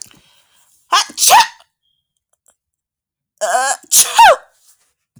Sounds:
Sneeze